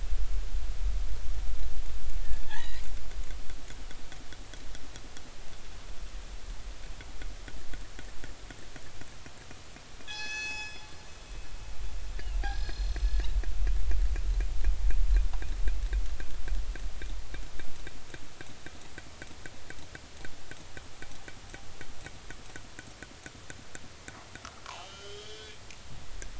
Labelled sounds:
2.4	2.9	killer whale, northern resident, G clan, call N40, 0.80 to 3.6 kHz
10.1	10.9	killer whale, northern resident, G clan, call N24ii, 0.80 to 6.9 kHz
12.4	13.3	killer whale, northern resident, G clan, call N40, 1.5 to 5.1 kHz
24.6	25.5	killer whale, northern resident, 0.80 to 3.5 kHz

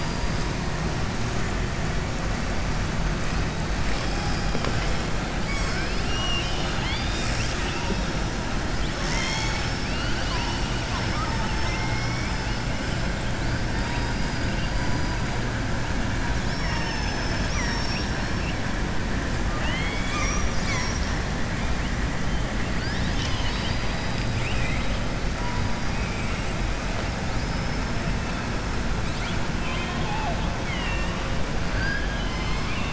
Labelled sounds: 16.5	17.2	killer whale, southern resident, 0.89 to 3.5 kHz
19.5	21.1	killer whale, southern resident, 1.0 to 7.8 kHz
22.7	24.9	killer whale, southern resident, 1.7 to 6.5 kHz
27.3	27.9	killer whale, southern resident, 4.4 to 5.7 kHz
29.5	31.2	killer whale, southern resident, 0.66 to 3.8 kHz

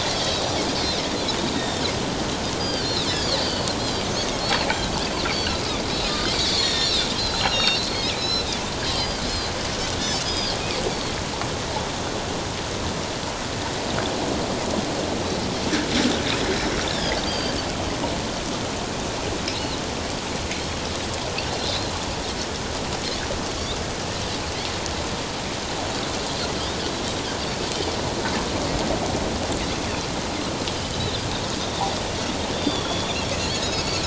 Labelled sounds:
0.1	0.6	Pacific white-sided dolphin, 4.5 to 6.1 kHz
1.5	3.1	Pacific white-sided dolphin, 3.0 to 4.9 kHz
3.4	4.7	Pacific white-sided dolphin, 4.1 to 4.8 kHz
5.9	9.2	Pacific white-sided dolphin, 1.7 to 5.8 kHz
10.0	10.6	Pacific white-sided dolphin, 3.1 to 6.3 kHz
10.9	11.1	Pacific white-sided dolphin, 4.2 to 4.8 kHz
17.3	17.6	Pacific white-sided dolphin, 3.0 to 4.9 kHz
19.5	19.8	Pacific white-sided dolphin, 3.8 to 4.4 kHz
30.9	31.2	Pacific white-sided dolphin, 3.4 to 4.0 kHz
32.5	34.0	Pacific white-sided dolphin, 3.2 to 5.8 kHz

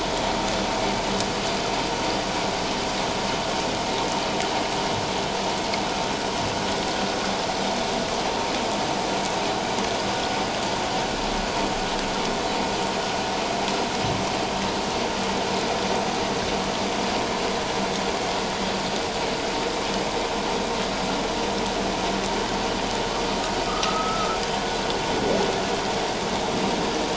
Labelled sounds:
23.7	24.4	humpback whale, 1.1 to 1.4 kHz

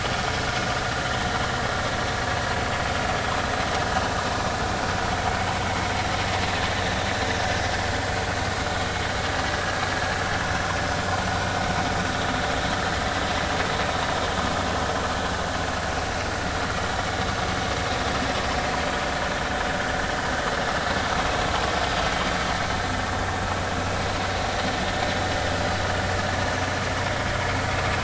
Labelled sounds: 9.4	9.8	vessel noise, 1.6 to 1.7 kHz

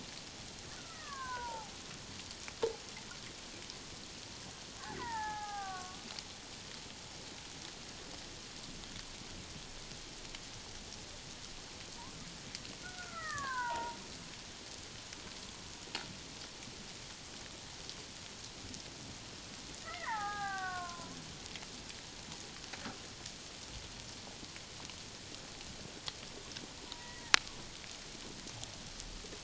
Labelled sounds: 0.7	1.7	killer whale, Bigg's (transient), 0.78 to 2.0 kHz
4.8	6.0	killer whale, Bigg's (transient), 0.78 to 2.0 kHz
12.8	14.0	killer whale, Bigg's (transient), 0.81 to 2.1 kHz
19.8	21.2	killer whale, Bigg's (transient), 0.78 to 2.2 kHz
26.8	27.3	killer whale, Bigg's (transient), 0.84 to 2.0 kHz

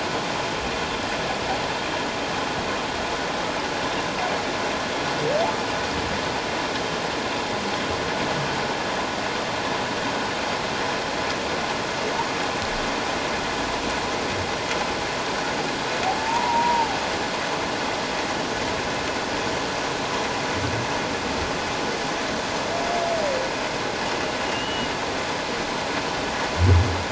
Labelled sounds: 16.2	16.9	humpback whale, 0.81 to 1.0 kHz
24.5	24.9	humpback whale, 2.8 to 3.1 kHz

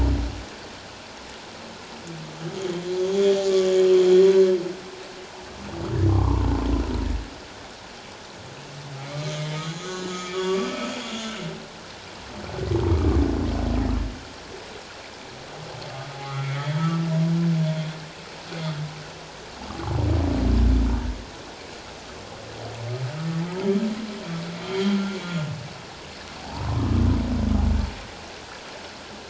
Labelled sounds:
3.0	3.4	humpback whale, 3.1 to 3.4 kHz
6.1	6.5	humpback whale, 0.84 to 1.2 kHz
9.0	11.4	humpback whale, 1.1 to 7.0 kHz
16.2	17.1	humpback whale, 1.1 to 3.4 kHz
24.6	25.0	humpback whale, 3.1 to 3.4 kHz
26.4	26.7	humpback whale, 0.78 to 1.0 kHz

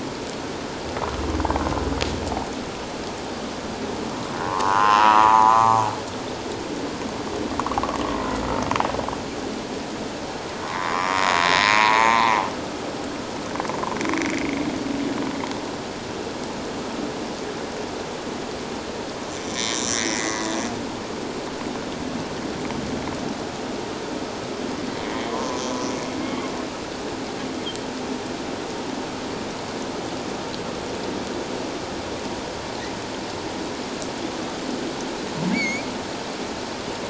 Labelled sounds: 4.4	5.8	humpback whale, 0.78 to 1.5 kHz
10.6	12.5	humpback whale, 0.78 to 5.9 kHz
19.3	21.0	humpback whale, 1.8 to 8.0 kHz
25.3	25.6	humpback whale, 0.91 to 1.2 kHz
35.5	35.9	humpback whale, 2.0 to 6.9 kHz

